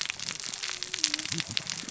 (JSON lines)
{"label": "biophony, cascading saw", "recorder": "SoundTrap 600 or HydroMoth"}